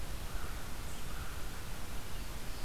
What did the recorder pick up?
Red-eyed Vireo, American Crow, Black-throated Blue Warbler